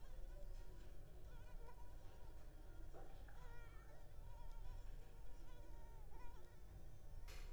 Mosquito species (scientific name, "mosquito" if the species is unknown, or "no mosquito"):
Culex pipiens complex